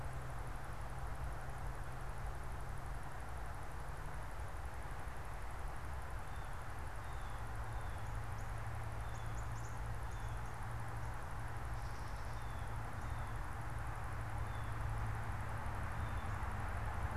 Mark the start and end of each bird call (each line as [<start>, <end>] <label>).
[8.33, 10.33] Northern Cardinal (Cardinalis cardinalis)
[12.23, 16.63] Blue Jay (Cyanocitta cristata)